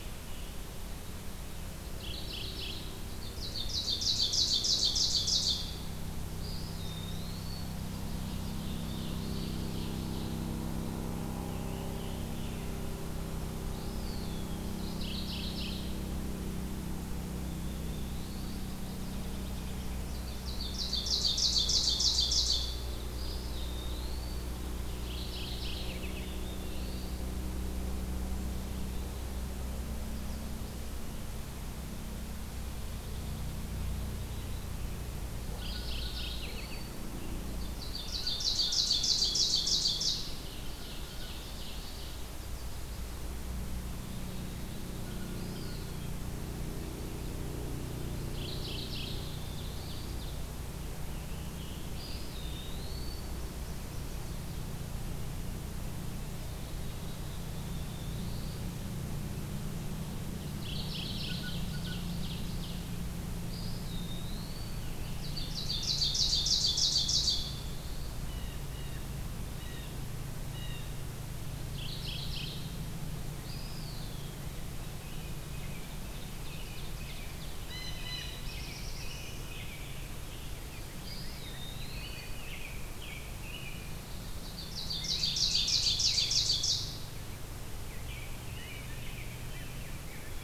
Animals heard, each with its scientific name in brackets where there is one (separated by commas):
unidentified call, Ovenbird (Seiurus aurocapilla), Mourning Warbler (Geothlypis philadelphia), American Robin (Turdus migratorius), Eastern Wood-Pewee (Contopus virens), Black-throated Blue Warbler (Setophaga caerulescens), Blue Jay (Cyanocitta cristata), Rose-breasted Grosbeak (Pheucticus ludovicianus)